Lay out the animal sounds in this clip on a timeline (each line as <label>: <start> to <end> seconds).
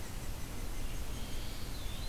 Red-eyed Vireo (Vireo olivaceus): 0.0 to 2.1 seconds
unidentified call: 0.0 to 2.1 seconds
Gray Catbird (Dumetella carolinensis): 1.0 to 1.9 seconds